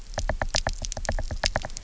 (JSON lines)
{"label": "biophony, knock", "recorder": "SoundTrap 300"}